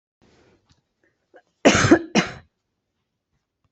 {"expert_labels": [{"quality": "good", "cough_type": "wet", "dyspnea": false, "wheezing": false, "stridor": false, "choking": false, "congestion": false, "nothing": true, "diagnosis": "healthy cough", "severity": "pseudocough/healthy cough"}], "age": 43, "gender": "female", "respiratory_condition": false, "fever_muscle_pain": false, "status": "healthy"}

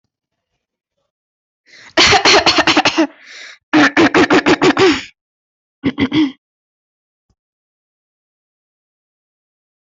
{"expert_labels": [{"quality": "good", "cough_type": "dry", "dyspnea": false, "wheezing": false, "stridor": false, "choking": false, "congestion": false, "nothing": true, "diagnosis": "healthy cough", "severity": "pseudocough/healthy cough"}], "age": 18, "gender": "female", "respiratory_condition": false, "fever_muscle_pain": false, "status": "symptomatic"}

